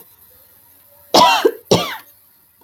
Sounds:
Cough